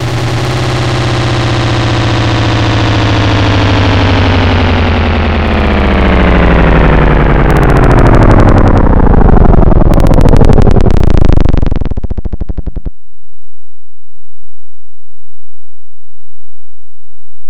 Does the machine slow down over time?
yes